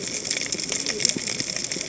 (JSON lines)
{"label": "biophony, cascading saw", "recorder": "HydroMoth"}